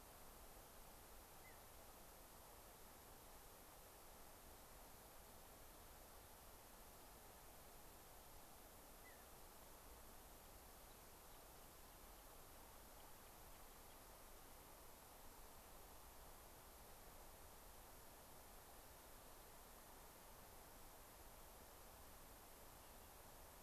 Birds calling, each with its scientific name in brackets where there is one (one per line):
Mountain Bluebird (Sialia currucoides)